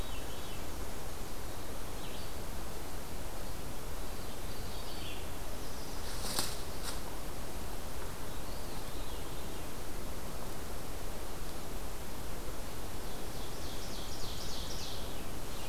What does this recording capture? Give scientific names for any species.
Catharus fuscescens, Vireo olivaceus, Setophaga pensylvanica, Seiurus aurocapilla